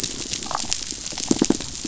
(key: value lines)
label: biophony, damselfish
recorder: SoundTrap 500